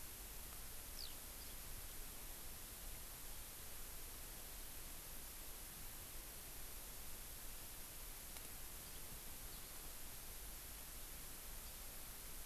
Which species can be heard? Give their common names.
Eurasian Skylark